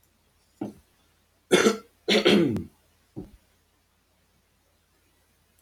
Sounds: Cough